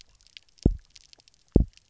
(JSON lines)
{"label": "biophony, double pulse", "recorder": "SoundTrap 300"}